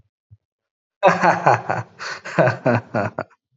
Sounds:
Laughter